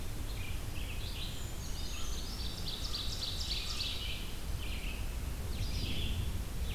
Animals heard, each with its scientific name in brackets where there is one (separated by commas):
Red-eyed Vireo (Vireo olivaceus), Ovenbird (Seiurus aurocapilla), Brown Creeper (Certhia americana), American Crow (Corvus brachyrhynchos)